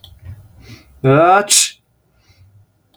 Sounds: Sneeze